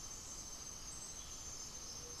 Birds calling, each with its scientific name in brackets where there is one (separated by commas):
Cinereous Tinamou (Crypturellus cinereus), Gray-fronted Dove (Leptotila rufaxilla)